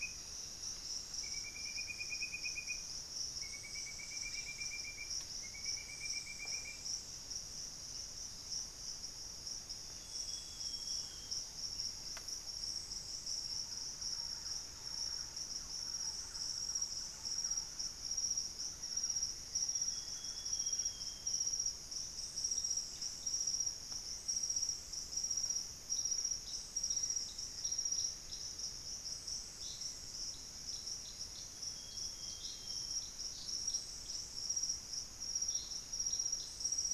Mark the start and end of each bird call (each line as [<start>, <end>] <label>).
[9.62, 11.62] Amazonian Grosbeak (Cyanoloxia rothschildii)
[13.22, 21.52] Thrush-like Wren (Campylorhynchus turdinus)
[18.62, 21.02] Black-faced Antthrush (Formicarius analis)
[19.32, 21.72] Amazonian Grosbeak (Cyanoloxia rothschildii)
[22.52, 30.32] unidentified bird
[31.12, 33.32] Amazonian Grosbeak (Cyanoloxia rothschildii)